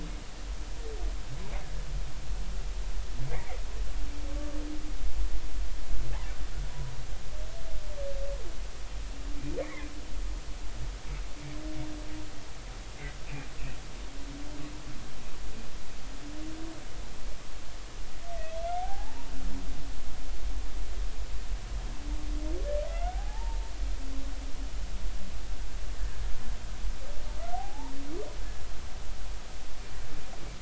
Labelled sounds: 3.3	3.6	humpback whale, 1.8 to 2.4 kHz
9.6	9.9	humpback whale, 1.8 to 2.4 kHz
18.8	19.3	humpback whale, 0.80 to 1.0 kHz
22.9	23.7	humpback whale, 0.80 to 2.4 kHz
27.5	27.9	humpback whale, 0.80 to 0.99 kHz

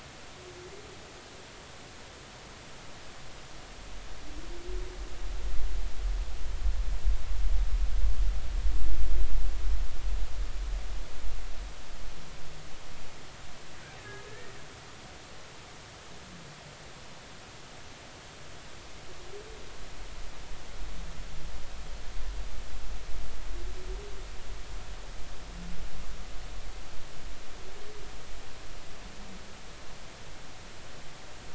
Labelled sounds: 14.0	14.2	humpback whale, 1.6 to 2.0 kHz

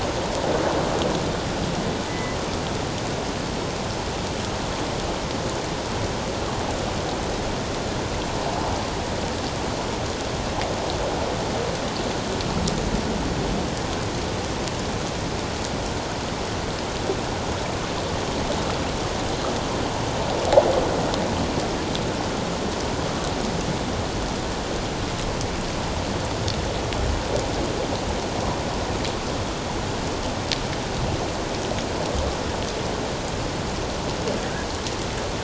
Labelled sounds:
2.1	2.4	killer whale, northern resident, 1.9 to 2.2 kHz

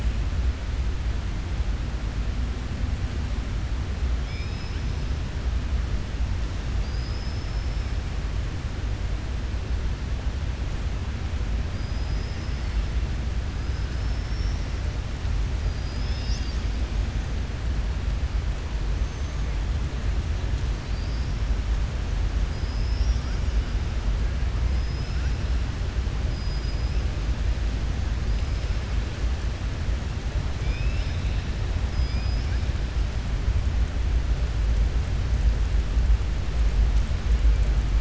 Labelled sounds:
4.2	4.9	killer whale, southern resident, 2.2 to 5.6 kHz
6.7	7.9	killer whale, southern resident, 4.6 to 5.4 kHz
11.7	12.7	killer whale, southern resident, 4.4 to 6.0 kHz
13.9	14.7	killer whale, southern resident, 4.6 to 6.0 kHz
22.5	23.5	killer whale, southern resident, 4.8 to 6.1 kHz
24.7	25.4	killer whale, southern resident, 4.2 to 5.8 kHz
26.3	27.0	killer whale, southern resident, 4.9 to 5.4 kHz
30.5	31.4	killer whale, southern resident, 2.3 to 5.5 kHz
31.8	32.6	killer whale, southern resident, 2.3 to 5.6 kHz

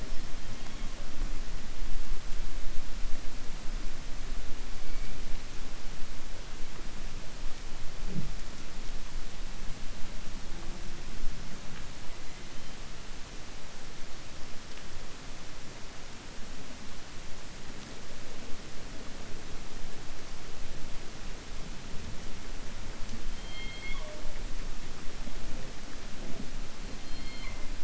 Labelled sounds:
27.0	27.6	killer whale, 1.0 to 4.3 kHz

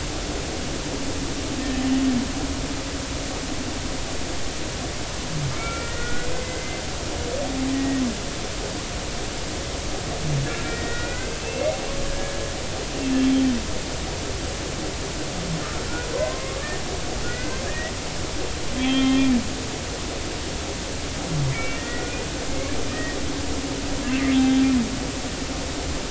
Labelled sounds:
5.6	6.8	humpback whale, 1.3 to 2.4 kHz
7.7	8.0	humpback whale, 1.8 to 2.0 kHz
10.6	12.5	humpback whale, 1.4 to 2.8 kHz
16.1	16.6	humpback whale, 0.96 to 1.2 kHz
17.2	17.9	humpback whale, 1.4 to 2.1 kHz
18.8	19.3	humpback whale, 1.3 to 3.5 kHz
21.5	23.2	humpback whale, 1.4 to 2.6 kHz

